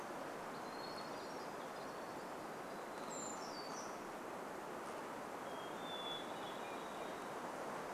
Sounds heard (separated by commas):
warbler song, Hermit Thrush song